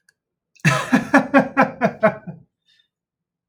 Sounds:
Laughter